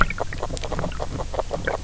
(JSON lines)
{"label": "biophony, grazing", "recorder": "SoundTrap 300"}